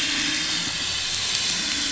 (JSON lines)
{"label": "anthrophony, boat engine", "recorder": "SoundTrap 500"}